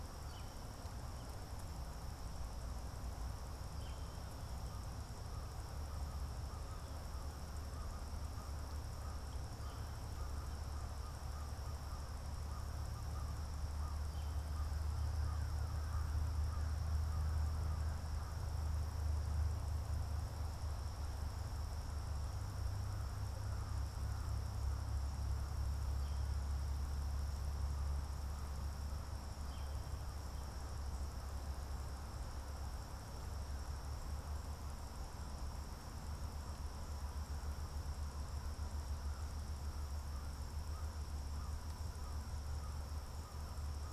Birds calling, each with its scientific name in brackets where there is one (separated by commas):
American Crow (Corvus brachyrhynchos), Northern Flicker (Colaptes auratus)